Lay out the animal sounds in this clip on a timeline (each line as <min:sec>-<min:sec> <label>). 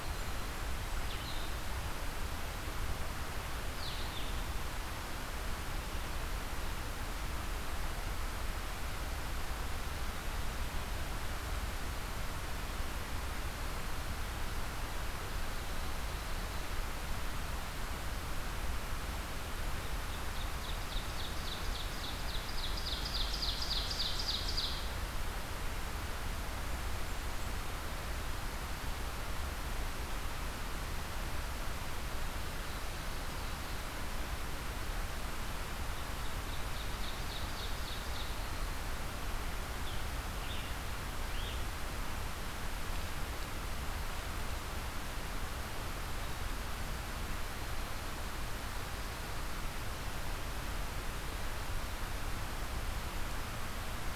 0:00.0-0:01.0 Blackburnian Warbler (Setophaga fusca)
0:00.0-0:04.7 Red-eyed Vireo (Vireo olivaceus)
0:20.0-0:25.1 Ovenbird (Seiurus aurocapilla)
0:26.6-0:27.7 Blackburnian Warbler (Setophaga fusca)
0:32.1-0:33.8 Ovenbird (Seiurus aurocapilla)
0:35.6-0:38.6 Ovenbird (Seiurus aurocapilla)
0:39.6-0:41.9 Red-eyed Vireo (Vireo olivaceus)